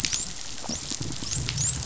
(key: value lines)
label: biophony, dolphin
recorder: SoundTrap 500